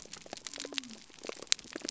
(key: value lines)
label: biophony
recorder: SoundTrap 300